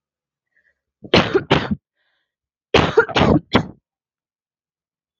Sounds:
Cough